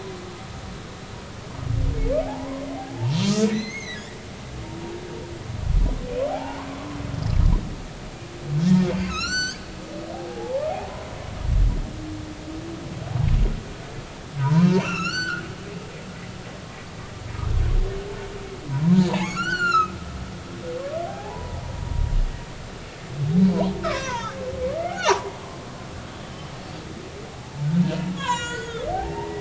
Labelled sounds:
2.2	4.0	humpback whale, 0.80 to 6.6 kHz
6.3	6.7	humpback whale, 0.80 to 1.2 kHz
9.1	9.7	humpback whale, 1.2 to 8.0 kHz
10.3	10.6	humpback whale, 0.80 to 1.0 kHz
14.4	15.8	humpback whale, 0.86 to 6.1 kHz
18.7	19.9	humpback whale, 0.80 to 7.4 kHz
21.1	21.6	humpback whale, 0.80 to 1.0 kHz
23.8	24.4	humpback whale, 0.83 to 6.4 kHz
24.8	25.4	humpback whale, 0.80 to 6.3 kHz
28.2	29.3	humpback whale, 0.80 to 7.5 kHz

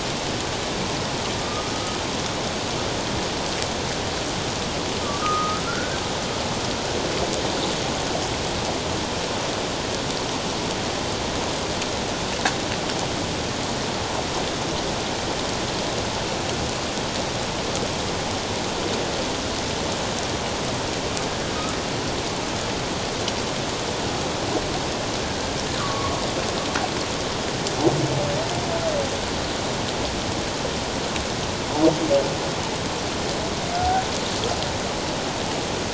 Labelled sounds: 1.4	1.7	humpback whale, 1.2 to 1.3 kHz
5.0	6.0	humpback whale, 1.1 to 1.7 kHz
25.8	26.1	humpback whale, 1.0 to 1.3 kHz

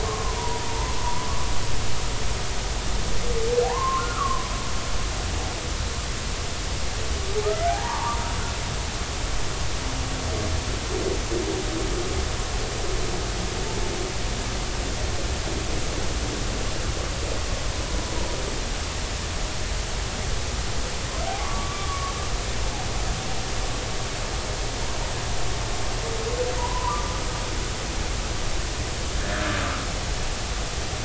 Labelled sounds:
0.0	1.3	humpback whale, 0.86 to 1.2 kHz
3.6	4.5	humpback whale, 0.80 to 1.5 kHz
7.7	8.3	humpback whale, 0.80 to 1.2 kHz
21.4	22.1	humpback whale, 0.99 to 1.2 kHz
26.6	27.1	humpback whale, 0.90 to 1.2 kHz
29.2	29.5	humpback whale, 1.4 to 1.9 kHz

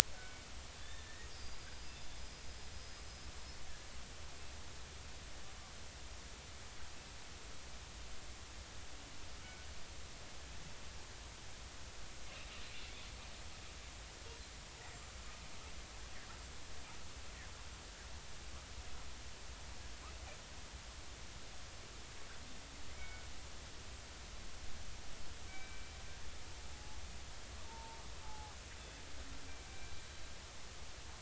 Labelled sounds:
0.2	0.4	killer whale, northern resident, 1.4 to 1.6 kHz
0.8	2.1	killer whale, northern resident, 1.7 to 5.1 kHz
2.7	3.0	killer whale, northern resident, 5.0 to 5.1 kHz
14.8	15.2	killer whale, northern resident, 7.1 to 7.5 kHz
23.0	23.3	killer whale, northern resident, 1.4 to 2.3 kHz
25.5	25.9	killer whale, northern resident, 2.2 to 2.4 kHz
26.7	28.5	killer whale, northern resident, 0.80 to 0.96 kHz
29.7	30.0	killer whale, northern resident, 2.3 to 2.4 kHz

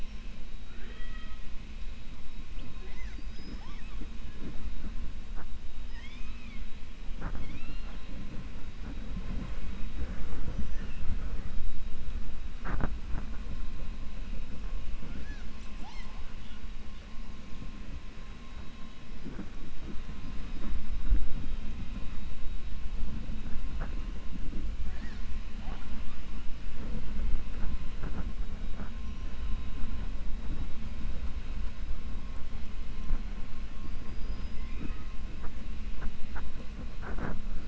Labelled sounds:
0.6	1.4	killer whale, 0.40 to 3.9 kHz
5.8	6.6	killer whale, 0.98 to 6.5 kHz
34.0	34.8	killer whale, 4.2 to 5.7 kHz

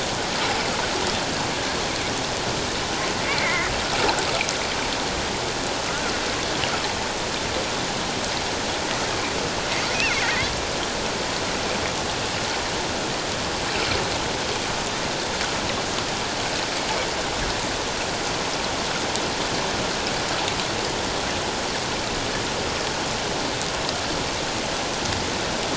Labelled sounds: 3.2	3.7	killer whale, offshore, call OFF07, 1.9 to 2.5 kHz
10.2	10.5	killer whale, offshore, call OFF07, 1.8 to 2.2 kHz

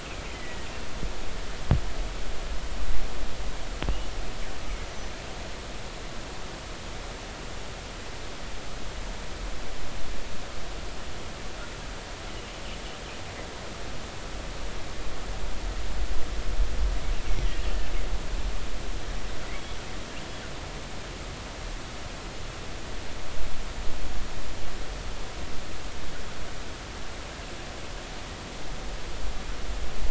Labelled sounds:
0.0	0.7	killer whale, 1.9 to 2.8 kHz
17.2	17.6	killer whale, 1.8 to 2.3 kHz

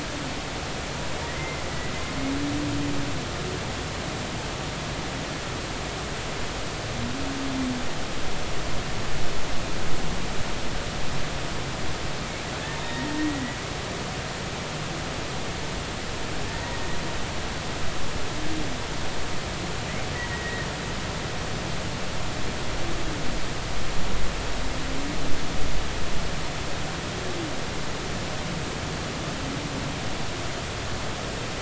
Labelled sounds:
12.8	13.6	humpback whale, 0.90 to 3.8 kHz
16.6	16.9	humpback whale, 1.8 to 2.0 kHz
20.3	20.7	humpback whale, 1.8 to 2.0 kHz

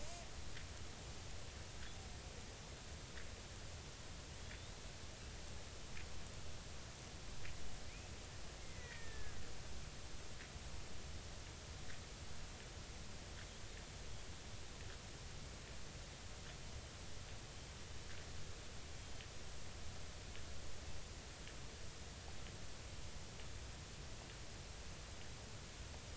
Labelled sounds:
4.4	4.8	killer whale, Bigg's (transient), 3.3 to 3.9 kHz
8.6	9.5	killer whale, Bigg's (transient), 1.4 to 2.5 kHz

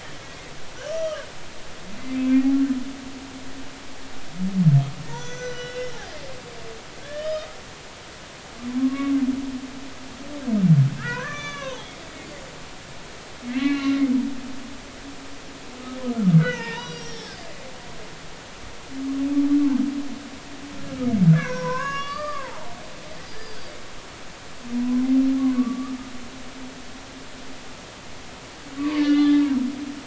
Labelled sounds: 0.9	1.2	humpback whale, 1.1 to 5.9 kHz
2.1	2.4	humpback whale, 2.3 to 2.5 kHz
5.1	5.9	humpback whale, 0.86 to 6.5 kHz
7.0	7.5	humpback whale, 1.5 to 3.8 kHz
8.7	9.2	humpback whale, 0.99 to 2.3 kHz
11.0	11.9	humpback whale, 0.80 to 6.5 kHz
13.5	14.0	humpback whale, 1.0 to 4.4 kHz
16.4	17.5	humpback whale, 0.86 to 5.9 kHz
21.3	22.8	humpback whale, 0.80 to 5.7 kHz
23.3	23.8	humpback whale, 4.6 to 5.0 kHz
25.5	26.0	humpback whale, 1.1 to 1.3 kHz
28.8	29.4	humpback whale, 0.90 to 3.6 kHz

